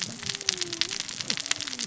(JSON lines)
{"label": "biophony, cascading saw", "recorder": "SoundTrap 600 or HydroMoth"}